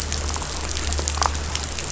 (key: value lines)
label: anthrophony, boat engine
recorder: SoundTrap 500